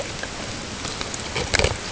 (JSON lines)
{"label": "ambient", "recorder": "HydroMoth"}